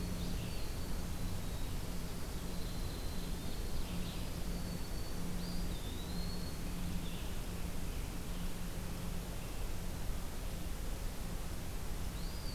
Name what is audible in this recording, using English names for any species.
Winter Wren, Red-eyed Vireo, Ovenbird, Black-throated Green Warbler, Eastern Wood-Pewee